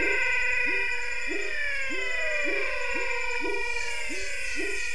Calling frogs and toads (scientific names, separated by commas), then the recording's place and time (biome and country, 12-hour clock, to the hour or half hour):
Leptodactylus labyrinthicus, Physalaemus albonotatus
Cerrado, Brazil, ~7pm